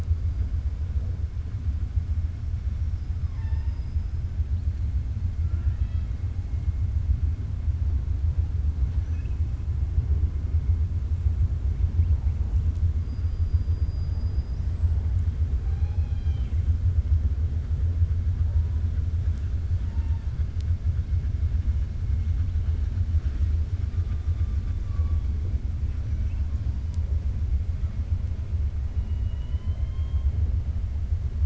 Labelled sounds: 3.2	4.1	killer whale, 0.87 to 5.2 kHz
5.4	6.1	killer whale, 1.3 to 5.2 kHz
13.8	14.7	killer whale, 4.7 to 6.1 kHz
15.6	16.6	killer whale, 0.77 to 6.2 kHz
29.0	29.8	killer whale, 1.9 to 3.9 kHz

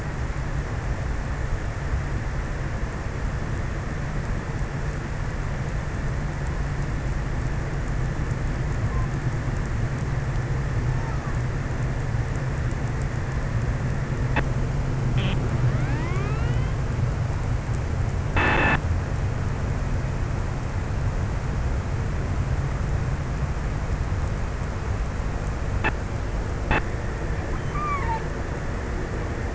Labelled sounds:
27.4	29.0	killer whale, offshore, 0.61 to 4.6 kHz

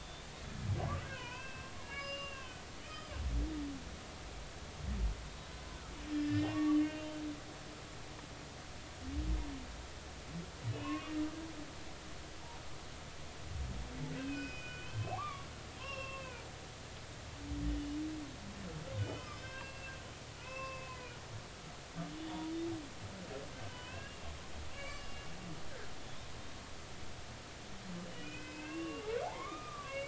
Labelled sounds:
0.0	3.1	humpback whale, 0.90 to 5.2 kHz
6.1	7.1	humpback whale, 1.1 to 5.3 kHz
10.7	11.2	humpback whale, 0.96 to 2.9 kHz
14.1	16.5	humpback whale, 0.80 to 5.6 kHz
19.0	19.9	humpback whale, 1.1 to 5.3 kHz
20.4	21.0	humpback whale, 0.90 to 5.4 kHz
22.2	22.5	humpback whale, 3.3 to 3.6 kHz
23.7	24.2	humpback whale, 0.96 to 2.9 kHz
24.7	25.3	humpback whale, 1.1 to 2.9 kHz
28.0	30.0	humpback whale, 0.80 to 3.1 kHz

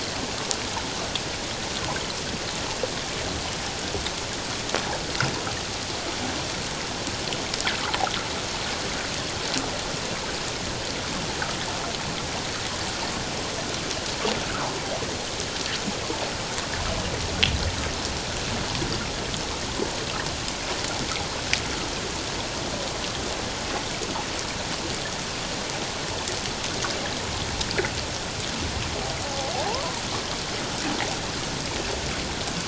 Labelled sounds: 29.3	29.9	fish, 0.78 to 1.2 kHz

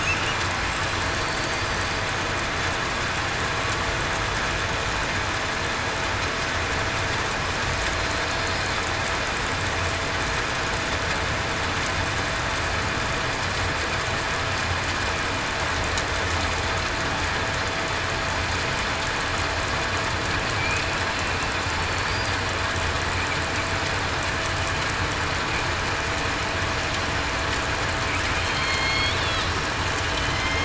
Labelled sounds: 28.4	29.1	killer whale, southern resident, 2.1 to 4.4 kHz

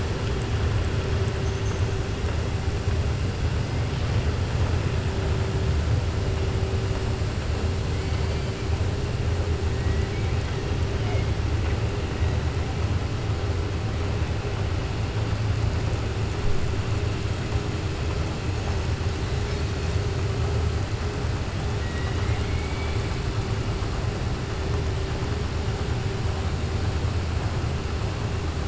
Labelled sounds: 9.8	10.3	killer whale, southern resident, 1.5 to 2.8 kHz
21.8	23.0	killer whale, southern resident, 1.2 to 4.1 kHz

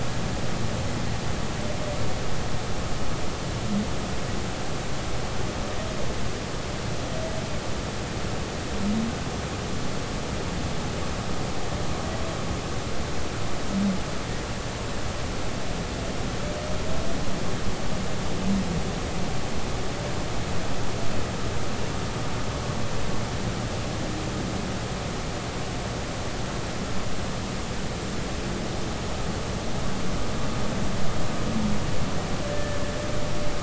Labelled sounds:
32.5	32.8	humpback whale, 1.6 to 1.8 kHz

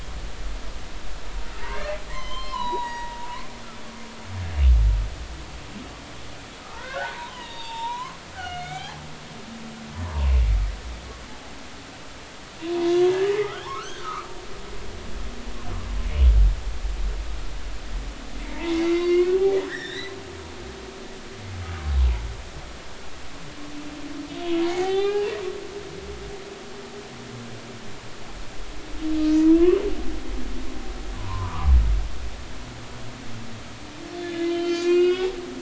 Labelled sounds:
1.5	3.2	humpback whale, 0.90 to 4.3 kHz
6.6	9.0	humpback whale, 0.80 to 7.4 kHz
10.0	10.4	humpback whale, 0.90 to 2.8 kHz
12.6	14.3	humpback whale, 0.93 to 1.8 kHz
18.4	20.2	humpback whale, 0.86 to 5.8 kHz
21.6	21.9	humpback whale, 0.99 to 1.3 kHz
24.7	25.3	humpback whale, 0.80 to 4.1 kHz
29.3	29.8	humpback whale, 0.90 to 3.0 kHz
31.2	31.7	humpback whale, 0.90 to 1.3 kHz
34.1	35.3	humpback whale, 1.3 to 6.2 kHz

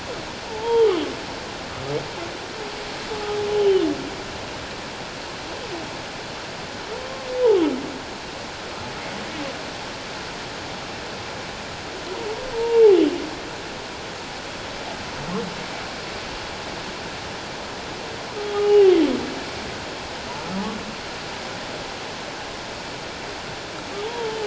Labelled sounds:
0.5	0.9	humpback whale, 0.81 to 3.3 kHz
12.5	12.8	humpback whale, 0.88 to 0.97 kHz
18.5	18.9	humpback whale, 0.78 to 3.0 kHz
24.0	24.4	humpback whale, 0.81 to 3.3 kHz

